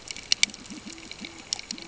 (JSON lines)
{"label": "ambient", "recorder": "HydroMoth"}